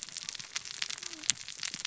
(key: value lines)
label: biophony, cascading saw
recorder: SoundTrap 600 or HydroMoth